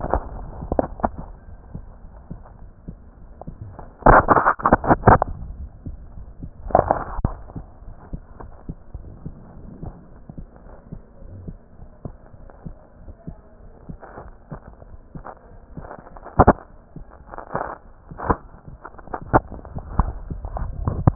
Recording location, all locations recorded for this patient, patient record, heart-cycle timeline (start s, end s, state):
pulmonary valve (PV)
aortic valve (AV)+pulmonary valve (PV)+mitral valve (MV)
#Age: Child
#Sex: Female
#Height: 153.0 cm
#Weight: 37.6 kg
#Pregnancy status: False
#Murmur: Unknown
#Murmur locations: nan
#Most audible location: nan
#Systolic murmur timing: nan
#Systolic murmur shape: nan
#Systolic murmur grading: nan
#Systolic murmur pitch: nan
#Systolic murmur quality: nan
#Diastolic murmur timing: nan
#Diastolic murmur shape: nan
#Diastolic murmur grading: nan
#Diastolic murmur pitch: nan
#Diastolic murmur quality: nan
#Outcome: Normal
#Campaign: 2015 screening campaign
0.00	7.83	unannotated
7.83	7.96	S1
7.96	8.10	systole
8.10	8.22	S2
8.22	8.40	diastole
8.40	8.52	S1
8.52	8.64	systole
8.64	8.76	S2
8.76	8.92	diastole
8.92	9.03	S1
9.03	9.24	systole
9.24	9.34	S2
9.34	9.58	diastole
9.58	9.72	S1
9.72	9.82	systole
9.82	9.94	S2
9.94	10.68	unannotated
10.68	10.78	S1
10.78	10.88	systole
10.88	11.02	S2
11.02	11.22	diastole
11.22	11.35	S1
11.35	11.46	systole
11.46	11.56	S2
11.56	11.78	diastole
11.78	11.90	S1
11.90	12.04	systole
12.04	12.14	S2
12.14	12.40	diastole
12.40	12.54	S1
12.54	12.64	systole
12.64	12.76	S2
12.76	13.04	diastole
13.04	13.16	S1
13.16	13.25	systole
13.25	13.36	S2
13.36	13.60	diastole
13.60	13.72	S1
13.72	13.87	systole
13.87	13.96	S2
13.96	21.15	unannotated